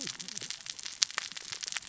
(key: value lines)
label: biophony, cascading saw
recorder: SoundTrap 600 or HydroMoth